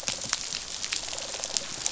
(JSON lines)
{"label": "biophony, rattle response", "recorder": "SoundTrap 500"}